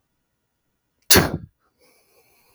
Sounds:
Sneeze